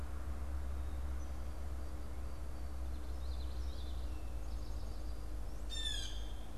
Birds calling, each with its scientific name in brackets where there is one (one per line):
Blue Jay (Cyanocitta cristata)
Common Yellowthroat (Geothlypis trichas)